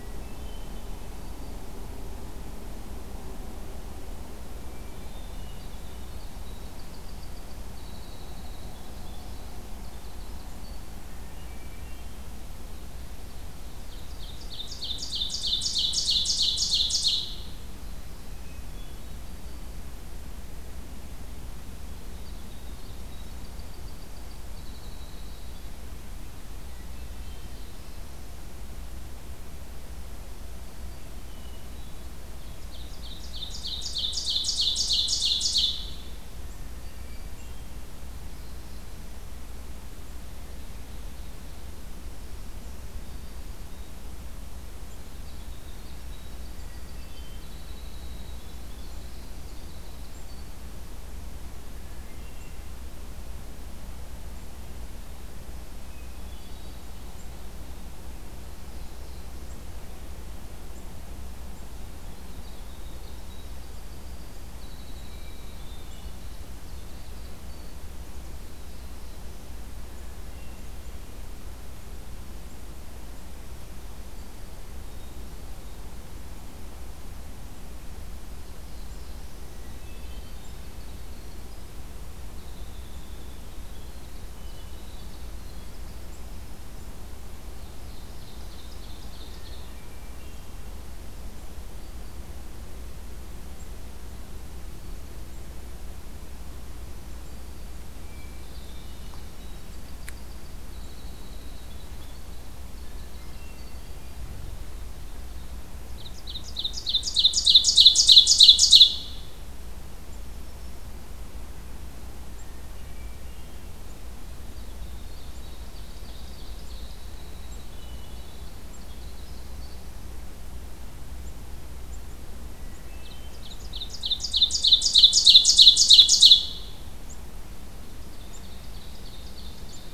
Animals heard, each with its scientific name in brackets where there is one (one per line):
Ovenbird (Seiurus aurocapilla)
Winter Wren (Troglodytes hiemalis)
Black-throated Blue Warbler (Setophaga caerulescens)
Black-throated Green Warbler (Setophaga virens)
Hermit Thrush (Catharus guttatus)